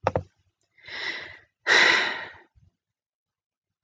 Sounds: Sigh